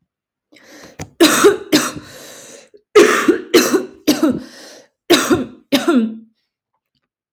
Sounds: Cough